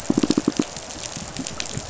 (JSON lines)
{"label": "biophony, pulse", "recorder": "SoundTrap 500"}